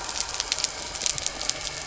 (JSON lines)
{"label": "anthrophony, boat engine", "recorder": "SoundTrap 300"}